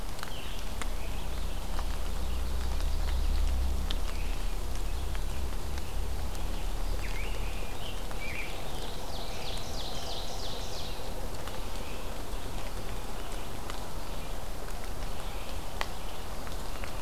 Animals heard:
Scarlet Tanager (Piranga olivacea), Ovenbird (Seiurus aurocapilla)

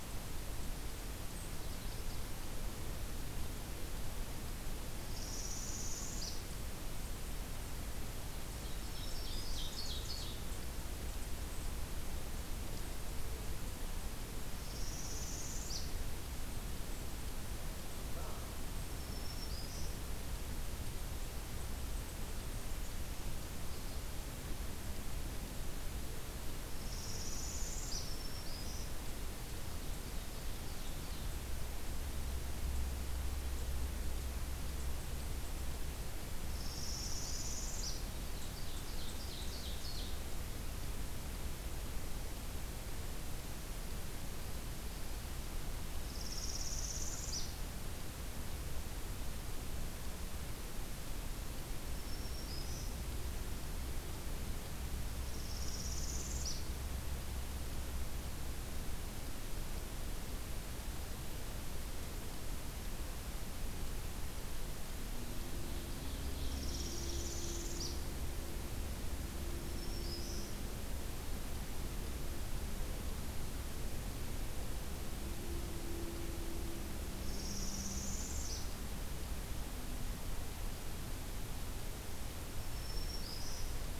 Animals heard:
Canada Goose (Branta canadensis), Northern Parula (Setophaga americana), Black-throated Green Warbler (Setophaga virens), Ovenbird (Seiurus aurocapilla)

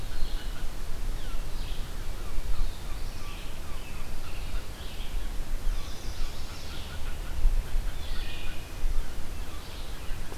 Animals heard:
Red-eyed Vireo (Vireo olivaceus), Chestnut-sided Warbler (Setophaga pensylvanica), Wood Thrush (Hylocichla mustelina), Mallard (Anas platyrhynchos)

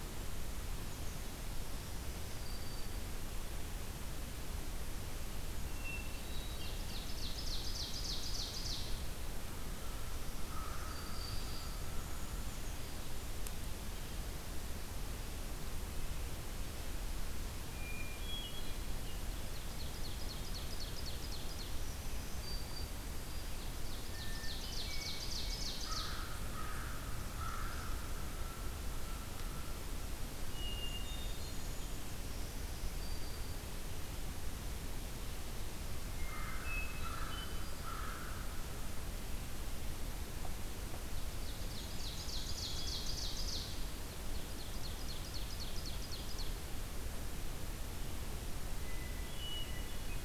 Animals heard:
Ovenbird (Seiurus aurocapilla), American Crow (Corvus brachyrhynchos), Black-capped Chickadee (Poecile atricapillus), Hermit Thrush (Catharus guttatus), Black-throated Green Warbler (Setophaga virens)

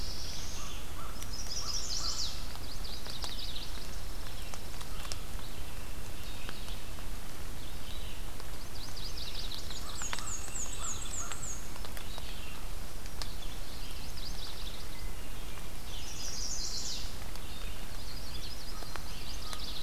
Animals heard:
Yellow-rumped Warbler (Setophaga coronata), Red-eyed Vireo (Vireo olivaceus), Chestnut-sided Warbler (Setophaga pensylvanica), Black-and-white Warbler (Mniotilta varia), Pine Warbler (Setophaga pinus), Hermit Thrush (Catharus guttatus), Black-throated Blue Warbler (Setophaga caerulescens), American Crow (Corvus brachyrhynchos)

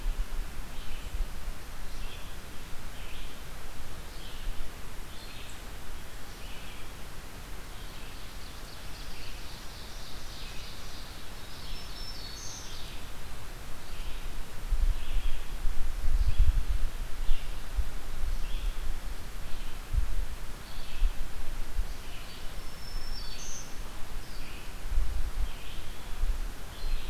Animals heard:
Black-throated Green Warbler (Setophaga virens), Ovenbird (Seiurus aurocapilla), Red-eyed Vireo (Vireo olivaceus)

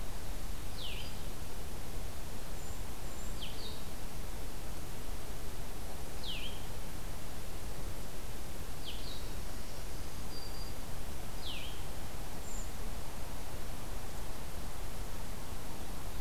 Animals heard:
Black-throated Green Warbler (Setophaga virens), Blue-headed Vireo (Vireo solitarius), Golden-crowned Kinglet (Regulus satrapa)

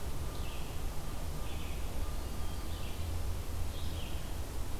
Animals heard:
Red-eyed Vireo (Vireo olivaceus)

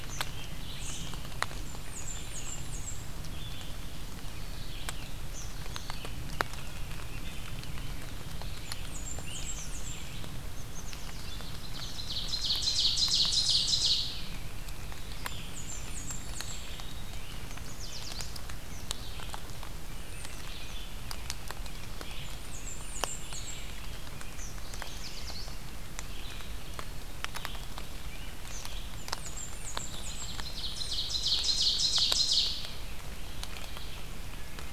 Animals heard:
Black-capped Chickadee (Poecile atricapillus), Great Crested Flycatcher (Myiarchus crinitus), Yellow Warbler (Setophaga petechia), American Robin (Turdus migratorius), Eastern Kingbird (Tyrannus tyrannus), Red-eyed Vireo (Vireo olivaceus), Blackburnian Warbler (Setophaga fusca), Ovenbird (Seiurus aurocapilla)

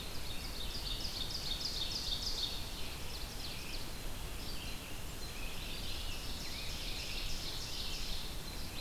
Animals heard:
Ovenbird (Seiurus aurocapilla), Scarlet Tanager (Piranga olivacea), Red-eyed Vireo (Vireo olivaceus)

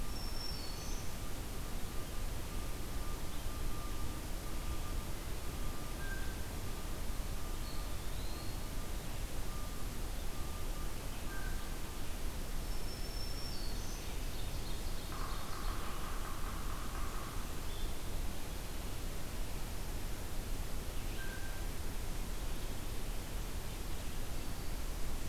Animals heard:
Blue Jay (Cyanocitta cristata), Ovenbird (Seiurus aurocapilla), Black-throated Green Warbler (Setophaga virens), Eastern Wood-Pewee (Contopus virens), Yellow-bellied Sapsucker (Sphyrapicus varius)

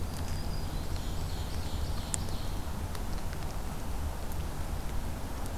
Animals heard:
Black-throated Green Warbler (Setophaga virens), Ovenbird (Seiurus aurocapilla), Blackburnian Warbler (Setophaga fusca)

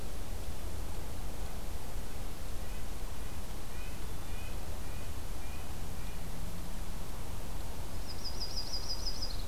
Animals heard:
Red-breasted Nuthatch (Sitta canadensis), Yellow-rumped Warbler (Setophaga coronata)

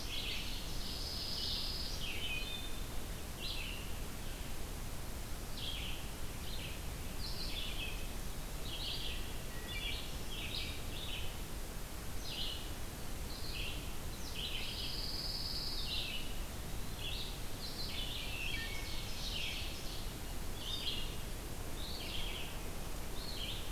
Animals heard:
Wood Thrush (Hylocichla mustelina), Red-eyed Vireo (Vireo olivaceus), Ovenbird (Seiurus aurocapilla), Pine Warbler (Setophaga pinus)

